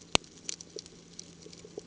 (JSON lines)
{"label": "ambient", "recorder": "HydroMoth"}